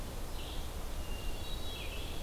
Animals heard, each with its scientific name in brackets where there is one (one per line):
Red-eyed Vireo (Vireo olivaceus)
Hermit Thrush (Catharus guttatus)